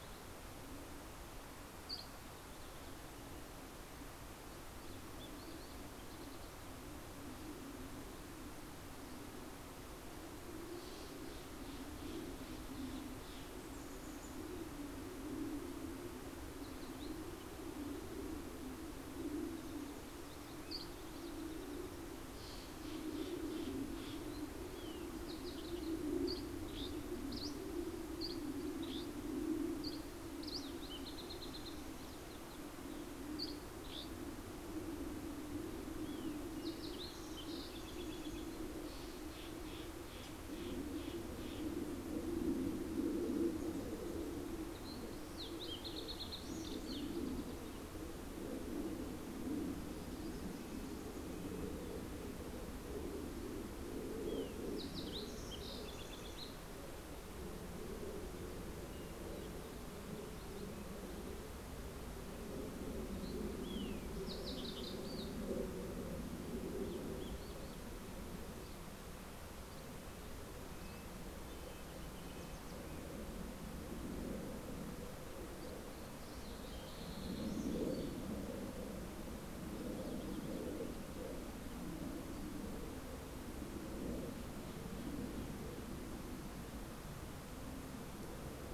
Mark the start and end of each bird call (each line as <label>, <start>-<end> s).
Dusky Flycatcher (Empidonax oberholseri), 1.4-2.7 s
Steller's Jay (Cyanocitta stelleri), 9.1-13.9 s
Mountain Chickadee (Poecile gambeli), 13.2-18.5 s
Steller's Jay (Cyanocitta stelleri), 21.5-24.6 s
Green-tailed Towhee (Pipilo chlorurus), 24.4-26.4 s
Dusky Flycatcher (Empidonax oberholseri), 26.0-30.3 s
Green-tailed Towhee (Pipilo chlorurus), 30.4-32.6 s
Dusky Flycatcher (Empidonax oberholseri), 32.6-35.0 s
Fox Sparrow (Passerella iliaca), 35.5-38.7 s
Steller's Jay (Cyanocitta stelleri), 38.2-42.5 s
Fox Sparrow (Passerella iliaca), 44.4-47.5 s
Fox Sparrow (Passerella iliaca), 53.7-57.3 s
Fox Sparrow (Passerella iliaca), 62.0-65.4 s
Red-breasted Nuthatch (Sitta canadensis), 68.3-73.4 s
Fox Sparrow (Passerella iliaca), 75.3-79.0 s